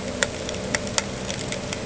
{"label": "ambient", "recorder": "HydroMoth"}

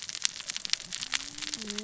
{"label": "biophony, cascading saw", "recorder": "SoundTrap 600 or HydroMoth"}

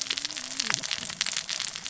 {"label": "biophony, cascading saw", "recorder": "SoundTrap 600 or HydroMoth"}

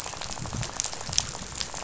{"label": "biophony, rattle", "recorder": "SoundTrap 500"}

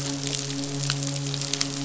{"label": "biophony, midshipman", "recorder": "SoundTrap 500"}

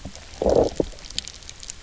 {"label": "biophony, low growl", "recorder": "SoundTrap 300"}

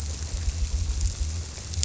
{"label": "biophony", "recorder": "SoundTrap 300"}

